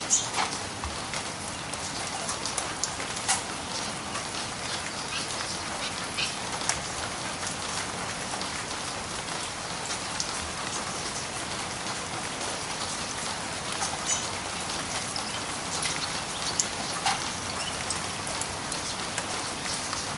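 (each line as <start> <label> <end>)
0.0 Rain falling with muffled bird calls in the background. 20.2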